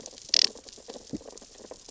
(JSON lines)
{"label": "biophony, sea urchins (Echinidae)", "recorder": "SoundTrap 600 or HydroMoth"}